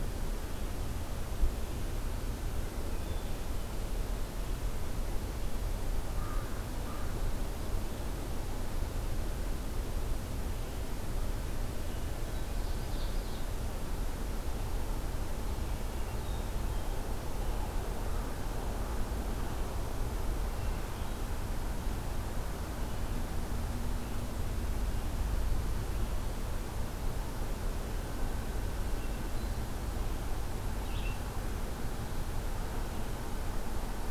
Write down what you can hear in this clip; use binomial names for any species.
Catharus guttatus, Corvus brachyrhynchos, Seiurus aurocapilla, Vireo olivaceus